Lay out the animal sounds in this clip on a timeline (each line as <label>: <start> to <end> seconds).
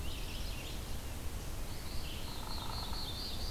Red-eyed Vireo (Vireo olivaceus): 0.0 to 3.5 seconds
Black-throated Blue Warbler (Setophaga caerulescens): 1.8 to 3.5 seconds
Hairy Woodpecker (Dryobates villosus): 2.1 to 3.1 seconds